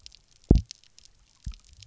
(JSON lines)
{"label": "biophony, double pulse", "recorder": "SoundTrap 300"}